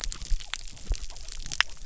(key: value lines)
label: biophony
recorder: SoundTrap 300